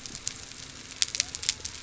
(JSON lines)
{"label": "biophony", "recorder": "SoundTrap 300"}